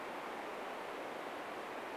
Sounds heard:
forest ambience